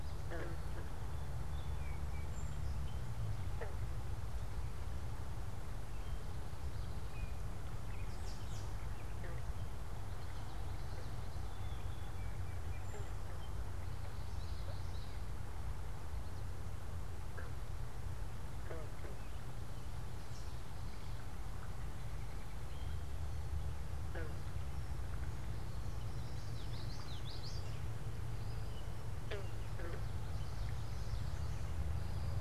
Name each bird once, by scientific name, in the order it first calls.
Melospiza melodia, Turdus migratorius, Geothlypis trichas